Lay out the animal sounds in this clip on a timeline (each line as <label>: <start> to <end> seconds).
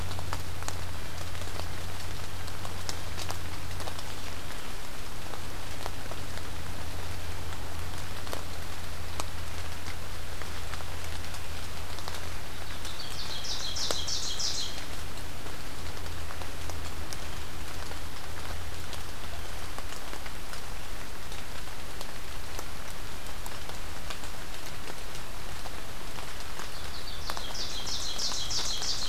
Ovenbird (Seiurus aurocapilla): 12.6 to 14.8 seconds
Ovenbird (Seiurus aurocapilla): 26.5 to 29.1 seconds